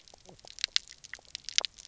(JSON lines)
{"label": "biophony, knock croak", "recorder": "SoundTrap 300"}